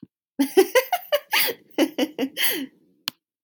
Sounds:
Laughter